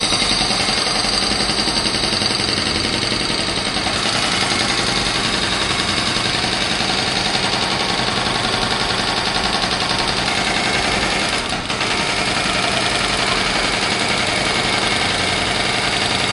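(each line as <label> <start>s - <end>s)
Construction sounds. 4.2s - 14.1s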